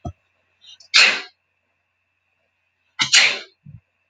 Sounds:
Sneeze